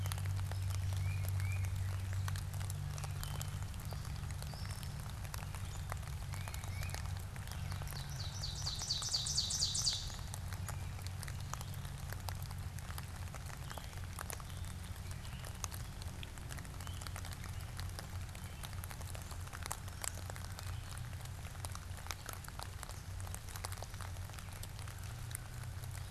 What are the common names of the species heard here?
Tufted Titmouse, Gray Catbird, Ovenbird